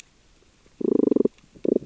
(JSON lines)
{"label": "biophony, damselfish", "recorder": "SoundTrap 600 or HydroMoth"}